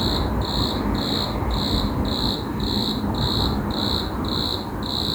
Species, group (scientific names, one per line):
Eumodicogryllus bordigalensis
Orthoptera